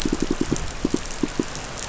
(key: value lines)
label: biophony, pulse
recorder: SoundTrap 500